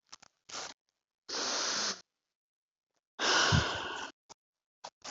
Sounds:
Sigh